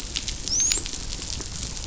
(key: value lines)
label: biophony, dolphin
recorder: SoundTrap 500